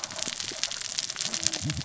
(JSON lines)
{"label": "biophony, cascading saw", "recorder": "SoundTrap 600 or HydroMoth"}